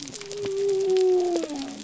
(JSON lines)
{"label": "biophony", "recorder": "SoundTrap 300"}